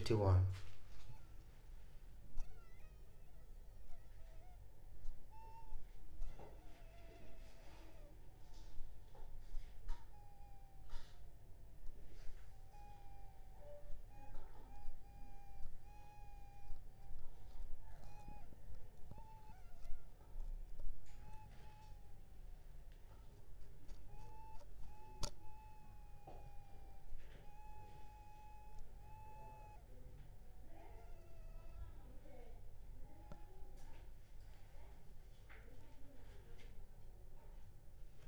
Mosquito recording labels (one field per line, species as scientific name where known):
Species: Anopheles funestus s.s.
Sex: female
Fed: unfed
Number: one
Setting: cup